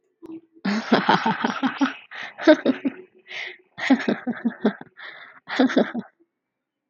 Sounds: Laughter